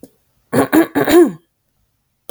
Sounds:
Throat clearing